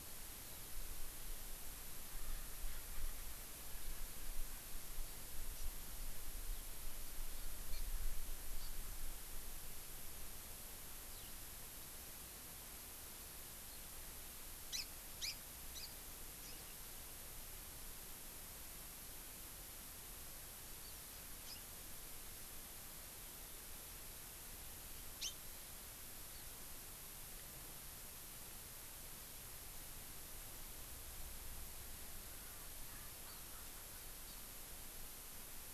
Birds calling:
House Finch (Haemorhous mexicanus)
Eurasian Skylark (Alauda arvensis)
Erckel's Francolin (Pternistis erckelii)
Hawaii Amakihi (Chlorodrepanis virens)

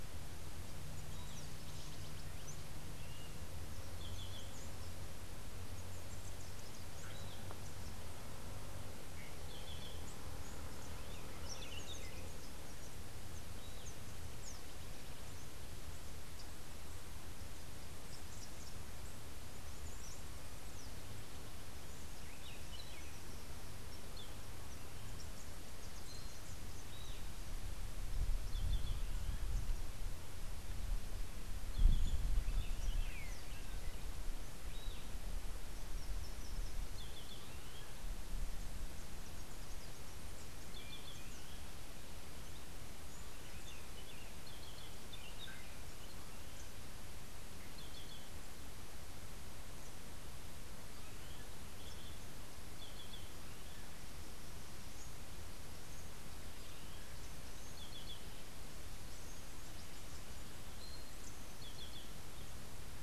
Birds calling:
Yellow-crowned Euphonia (Euphonia luteicapilla)
Yellow-throated Euphonia (Euphonia hirundinacea)
Buff-throated Saltator (Saltator maximus)

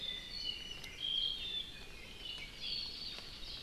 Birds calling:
Apapane (Himatione sanguinea)

